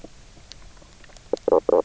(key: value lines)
label: biophony, knock croak
recorder: SoundTrap 300